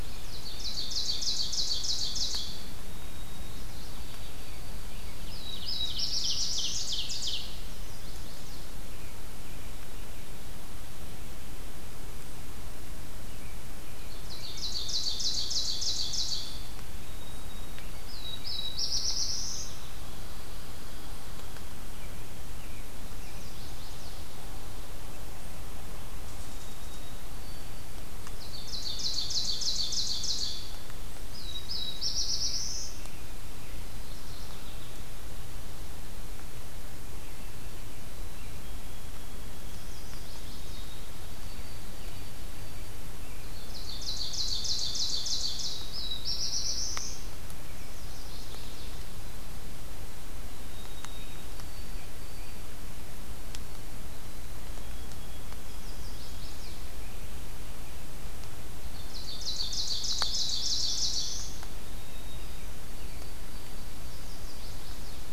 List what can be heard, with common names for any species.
Ovenbird, White-throated Sparrow, Mourning Warbler, Black-throated Blue Warbler, Chestnut-sided Warbler, Pine Warbler